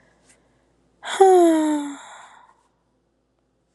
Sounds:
Sigh